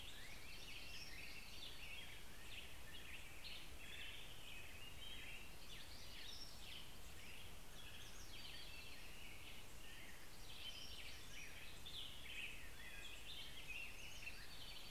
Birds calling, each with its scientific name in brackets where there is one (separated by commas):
American Robin (Turdus migratorius), Hermit Warbler (Setophaga occidentalis)